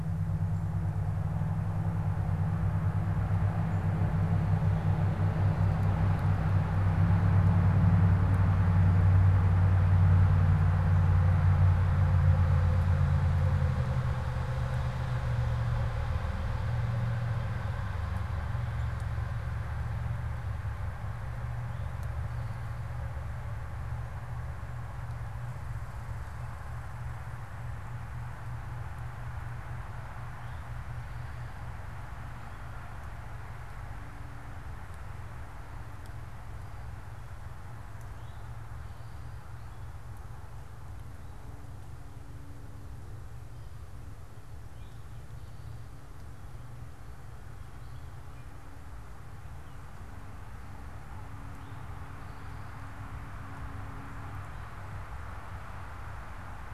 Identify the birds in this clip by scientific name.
Pipilo erythrophthalmus